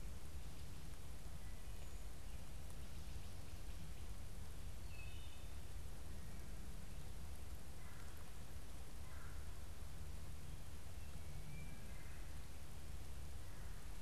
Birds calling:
Wood Thrush (Hylocichla mustelina), Red-bellied Woodpecker (Melanerpes carolinus)

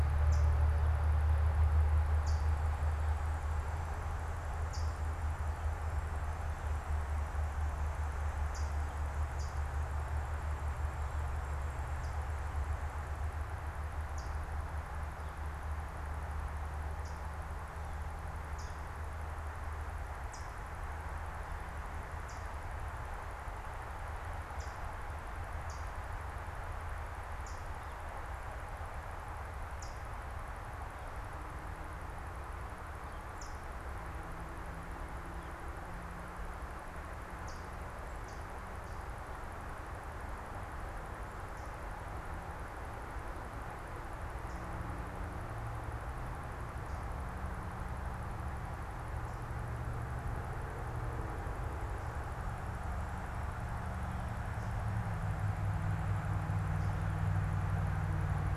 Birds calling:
Hooded Warbler (Setophaga citrina)

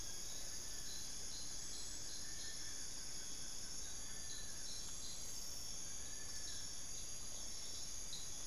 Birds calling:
Long-billed Woodcreeper (Nasica longirostris), Blue-crowned Trogon (Trogon curucui)

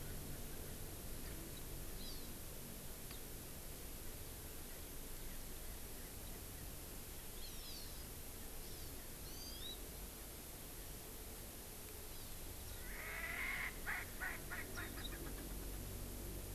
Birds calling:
Hawaii Amakihi (Chlorodrepanis virens), Erckel's Francolin (Pternistis erckelii), Warbling White-eye (Zosterops japonicus)

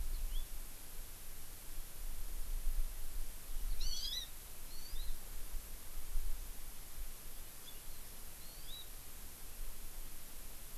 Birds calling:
Hawaii Amakihi (Chlorodrepanis virens), House Finch (Haemorhous mexicanus)

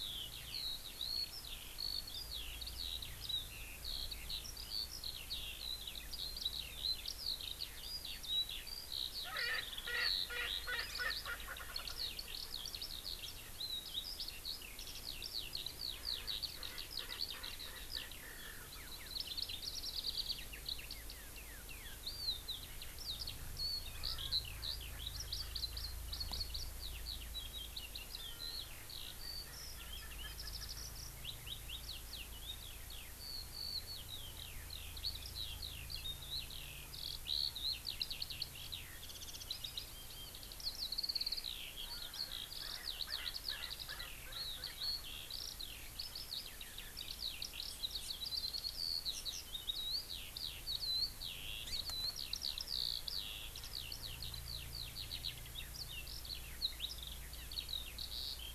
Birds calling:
Eurasian Skylark (Alauda arvensis), Erckel's Francolin (Pternistis erckelii)

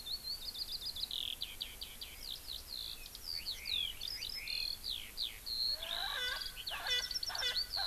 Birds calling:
Erckel's Francolin (Pternistis erckelii), Eurasian Skylark (Alauda arvensis)

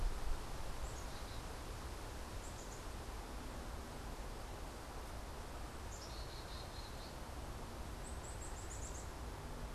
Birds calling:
Black-capped Chickadee (Poecile atricapillus)

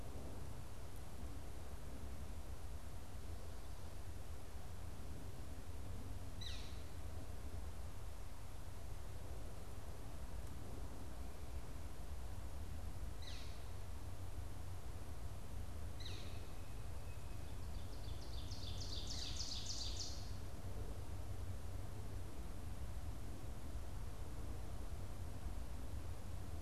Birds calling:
Ovenbird (Seiurus aurocapilla), Northern Flicker (Colaptes auratus)

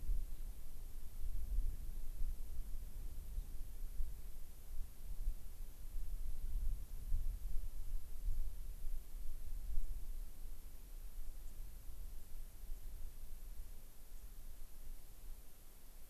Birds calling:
White-crowned Sparrow (Zonotrichia leucophrys)

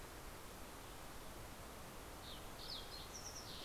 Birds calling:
Western Tanager (Piranga ludoviciana), Fox Sparrow (Passerella iliaca)

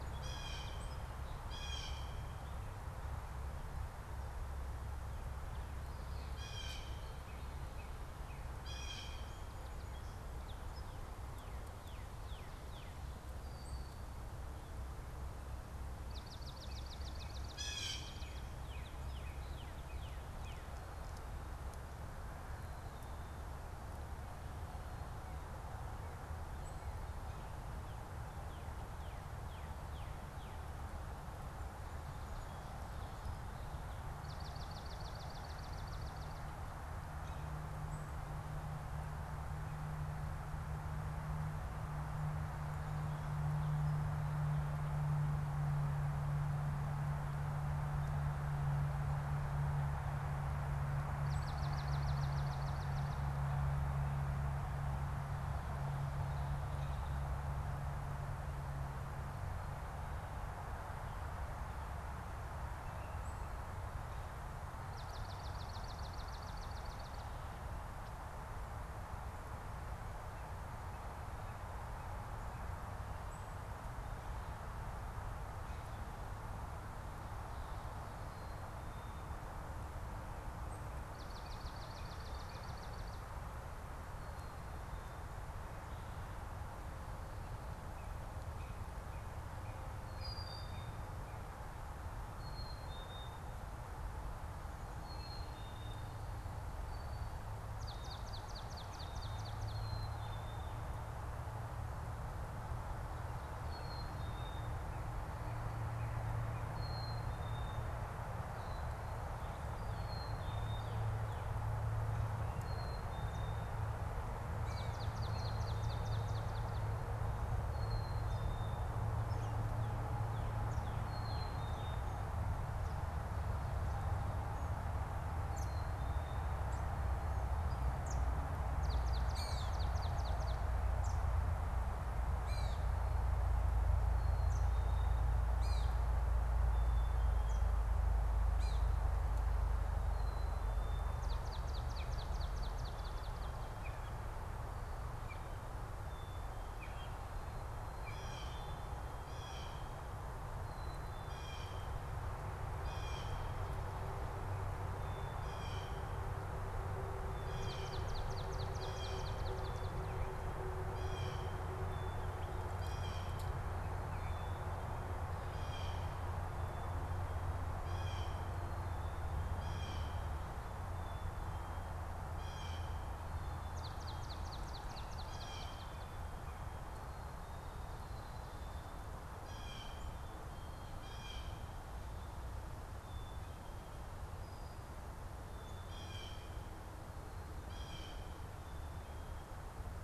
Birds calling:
Black-capped Chickadee (Poecile atricapillus), Gray Catbird (Dumetella carolinensis), unidentified bird, Brown-headed Cowbird (Molothrus ater), Blue Jay (Cyanocitta cristata), Northern Cardinal (Cardinalis cardinalis), Swamp Sparrow (Melospiza georgiana)

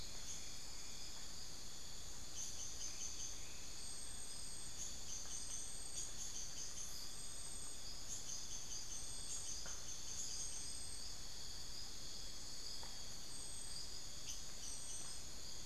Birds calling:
Tawny-bellied Screech-Owl (Megascops watsonii), unidentified bird

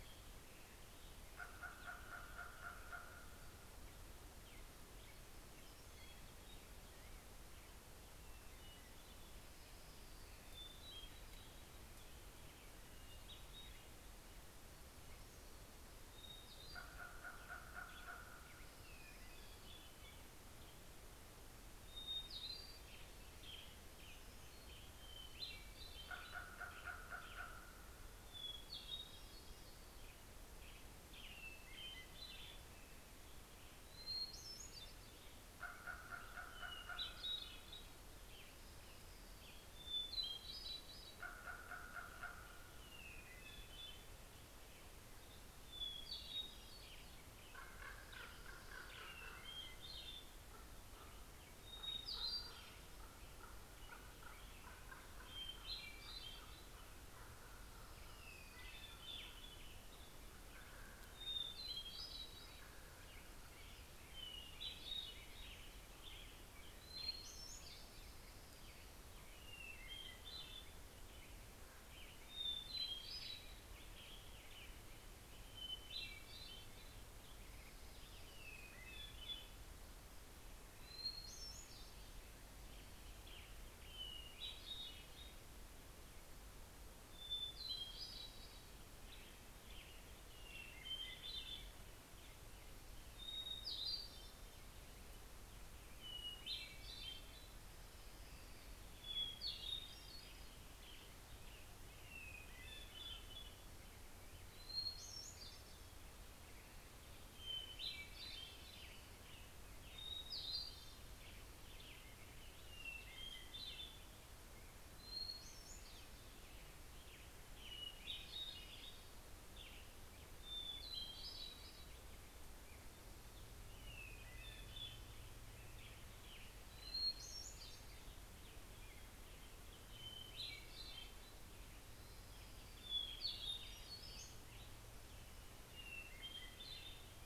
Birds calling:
Common Raven (Corvus corax), Western Tanager (Piranga ludoviciana), Hermit Thrush (Catharus guttatus)

